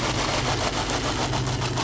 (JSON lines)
{"label": "anthrophony, boat engine", "recorder": "SoundTrap 500"}